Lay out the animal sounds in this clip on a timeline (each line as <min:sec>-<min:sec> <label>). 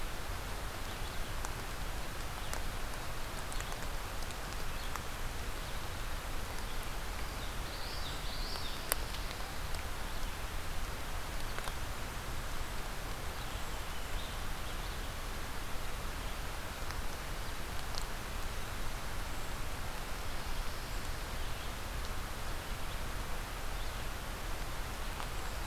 0:07.4-0:08.9 Common Yellowthroat (Geothlypis trichas)